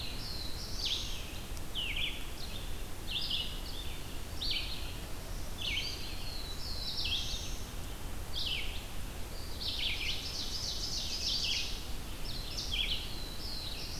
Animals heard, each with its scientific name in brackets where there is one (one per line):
Black-throated Blue Warbler (Setophaga caerulescens)
Red-eyed Vireo (Vireo olivaceus)
Ovenbird (Seiurus aurocapilla)
Black-throated Green Warbler (Setophaga virens)